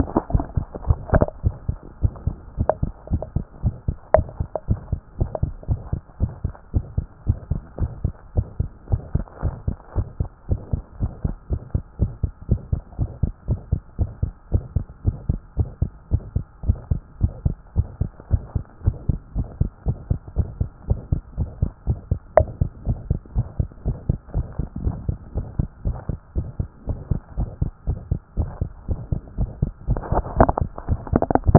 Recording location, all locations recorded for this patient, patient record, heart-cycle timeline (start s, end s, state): tricuspid valve (TV)
aortic valve (AV)+pulmonary valve (PV)+tricuspid valve (TV)+mitral valve (MV)
#Age: Child
#Sex: Female
#Height: 114.0 cm
#Weight: 17.7 kg
#Pregnancy status: False
#Murmur: Present
#Murmur locations: aortic valve (AV)+pulmonary valve (PV)+tricuspid valve (TV)
#Most audible location: tricuspid valve (TV)
#Systolic murmur timing: Early-systolic
#Systolic murmur shape: Decrescendo
#Systolic murmur grading: I/VI
#Systolic murmur pitch: Low
#Systolic murmur quality: Blowing
#Diastolic murmur timing: nan
#Diastolic murmur shape: nan
#Diastolic murmur grading: nan
#Diastolic murmur pitch: nan
#Diastolic murmur quality: nan
#Outcome: Abnormal
#Campaign: 2014 screening campaign
0.08	0.18	systole
0.18	0.20	S2
0.20	0.32	diastole
0.32	0.44	S1
0.44	0.56	systole
0.56	0.66	S2
0.66	0.86	diastole
0.86	0.98	S1
0.98	1.12	systole
1.12	1.26	S2
1.26	1.44	diastole
1.44	1.54	S1
1.54	1.68	systole
1.68	1.78	S2
1.78	2.02	diastole
2.02	2.12	S1
2.12	2.26	systole
2.26	2.36	S2
2.36	2.58	diastole
2.58	2.68	S1
2.68	2.82	systole
2.82	2.92	S2
2.92	3.10	diastole
3.10	3.22	S1
3.22	3.34	systole
3.34	3.44	S2
3.44	3.64	diastole
3.64	3.74	S1
3.74	3.88	systole
3.88	3.96	S2
3.96	4.16	diastole
4.16	4.26	S1
4.26	4.38	systole
4.38	4.48	S2
4.48	4.68	diastole
4.68	4.80	S1
4.80	4.92	systole
4.92	5.00	S2
5.00	5.18	diastole
5.18	5.30	S1
5.30	5.42	systole
5.42	5.52	S2
5.52	5.68	diastole
5.68	5.80	S1
5.80	5.92	systole
5.92	6.02	S2
6.02	6.20	diastole
6.20	6.32	S1
6.32	6.44	systole
6.44	6.54	S2
6.54	6.74	diastole
6.74	6.86	S1
6.86	6.96	systole
6.96	7.06	S2
7.06	7.26	diastole
7.26	7.38	S1
7.38	7.50	systole
7.50	7.60	S2
7.60	7.80	diastole
7.80	7.92	S1
7.92	8.04	systole
8.04	8.14	S2
8.14	8.36	diastole
8.36	8.46	S1
8.46	8.60	systole
8.60	8.68	S2
8.68	8.90	diastole
8.90	9.02	S1
9.02	9.14	systole
9.14	9.24	S2
9.24	9.44	diastole
9.44	9.54	S1
9.54	9.66	systole
9.66	9.76	S2
9.76	9.96	diastole
9.96	10.06	S1
10.06	10.20	systole
10.20	10.28	S2
10.28	10.50	diastole
10.50	10.60	S1
10.60	10.72	systole
10.72	10.82	S2
10.82	11.00	diastole
11.00	11.12	S1
11.12	11.24	systole
11.24	11.34	S2
11.34	11.50	diastole
11.50	11.60	S1
11.60	11.74	systole
11.74	11.82	S2
11.82	12.00	diastole
12.00	12.12	S1
12.12	12.22	systole
12.22	12.32	S2
12.32	12.50	diastole
12.50	12.60	S1
12.60	12.72	systole
12.72	12.82	S2
12.82	12.98	diastole
12.98	13.10	S1
13.10	13.22	systole
13.22	13.32	S2
13.32	13.48	diastole
13.48	13.60	S1
13.60	13.72	systole
13.72	13.80	S2
13.80	13.98	diastole
13.98	14.10	S1
14.10	14.22	systole
14.22	14.32	S2
14.32	14.52	diastole
14.52	14.64	S1
14.64	14.74	systole
14.74	14.84	S2
14.84	15.06	diastole
15.06	15.16	S1
15.16	15.28	systole
15.28	15.40	S2
15.40	15.58	diastole
15.58	15.68	S1
15.68	15.80	systole
15.80	15.90	S2
15.90	16.12	diastole
16.12	16.22	S1
16.22	16.34	systole
16.34	16.44	S2
16.44	16.66	diastole
16.66	16.78	S1
16.78	16.90	systole
16.90	17.00	S2
17.00	17.22	diastole
17.22	17.32	S1
17.32	17.44	systole
17.44	17.56	S2
17.56	17.76	diastole
17.76	17.88	S1
17.88	18.00	systole
18.00	18.10	S2
18.10	18.30	diastole
18.30	18.42	S1
18.42	18.54	systole
18.54	18.64	S2
18.64	18.84	diastole
18.84	18.96	S1
18.96	19.08	systole
19.08	19.18	S2
19.18	19.36	diastole
19.36	19.48	S1
19.48	19.60	systole
19.60	19.70	S2
19.70	19.86	diastole
19.86	19.98	S1
19.98	20.10	systole
20.10	20.20	S2
20.20	20.36	diastole
20.36	20.48	S1
20.48	20.60	systole
20.60	20.70	S2
20.70	20.88	diastole
20.88	21.00	S1
21.00	21.12	systole
21.12	21.22	S2
21.22	21.38	diastole
21.38	21.50	S1
21.50	21.60	systole
21.60	21.72	S2
21.72	21.88	diastole
21.88	21.98	S1
21.98	22.10	systole
22.10	22.20	S2
22.20	22.38	diastole
22.38	22.48	S1
22.48	22.60	systole
22.60	22.70	S2
22.70	22.86	diastole
22.86	22.98	S1
22.98	23.10	systole
23.10	23.20	S2
23.20	23.36	diastole
23.36	23.46	S1
23.46	23.58	systole
23.58	23.68	S2
23.68	23.86	diastole
23.86	23.98	S1
23.98	24.08	systole
24.08	24.18	S2
24.18	24.36	diastole
24.36	24.46	S1
24.46	24.58	systole
24.58	24.68	S2
24.68	24.84	diastole
24.84	24.96	S1
24.96	25.08	systole
25.08	25.18	S2
25.18	25.36	diastole
25.36	25.46	S1
25.46	25.58	systole
25.58	25.68	S2
25.68	25.86	diastole
25.86	25.96	S1
25.96	26.10	systole
26.10	26.18	S2
26.18	26.36	diastole
26.36	26.48	S1
26.48	26.58	systole
26.58	26.68	S2
26.68	26.88	diastole
26.88	26.98	S1
26.98	27.10	systole
27.10	27.20	S2
27.20	27.38	diastole
27.38	27.50	S1
27.50	27.62	systole
27.62	27.72	S2
27.72	27.88	diastole
27.88	27.98	S1
27.98	28.10	systole
28.10	28.20	S2
28.20	28.38	diastole
28.38	28.50	S1
28.50	28.60	systole
28.60	28.70	S2
28.70	28.88	diastole
28.88	29.00	S1
29.00	29.12	systole
29.12	29.20	S2
29.20	29.38	diastole
29.38	29.50	S1
29.50	29.62	systole
29.62	29.72	S2
29.72	29.88	diastole
29.88	30.00	S1
30.00	30.12	systole
30.12	30.24	S2
30.24	30.38	diastole
30.38	30.50	S1
30.50	30.62	systole
30.62	30.70	S2
30.70	30.88	diastole
30.88	31.00	S1
31.00	31.12	systole
31.12	31.22	S2
31.22	31.46	diastole
31.46	31.58	S1